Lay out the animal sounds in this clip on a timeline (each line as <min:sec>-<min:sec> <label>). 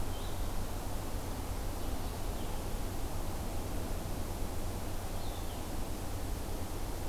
0:00.0-0:05.7 Blue-headed Vireo (Vireo solitarius)